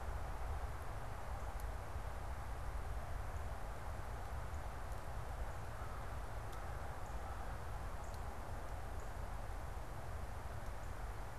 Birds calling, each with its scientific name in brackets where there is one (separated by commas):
Northern Cardinal (Cardinalis cardinalis), American Crow (Corvus brachyrhynchos)